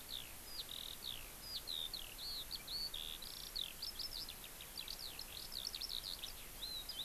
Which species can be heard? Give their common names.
Eurasian Skylark